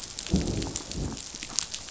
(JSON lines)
{"label": "biophony, growl", "recorder": "SoundTrap 500"}